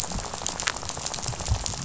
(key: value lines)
label: biophony, rattle
recorder: SoundTrap 500